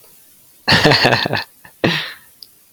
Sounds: Laughter